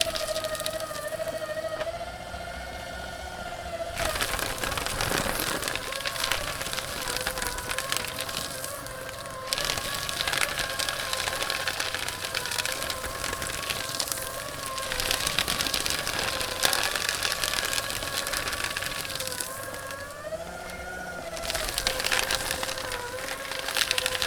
Are people speaking?
no